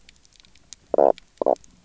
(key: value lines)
label: biophony, knock croak
recorder: SoundTrap 300